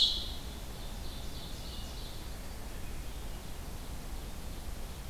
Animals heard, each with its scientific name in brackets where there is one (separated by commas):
Ovenbird (Seiurus aurocapilla), Hermit Thrush (Catharus guttatus)